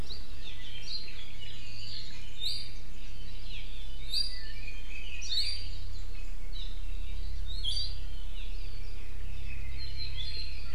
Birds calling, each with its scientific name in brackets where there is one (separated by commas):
Iiwi (Drepanis coccinea), Red-billed Leiothrix (Leiothrix lutea), Hawaii Creeper (Loxops mana)